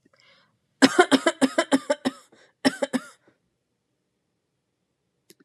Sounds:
Cough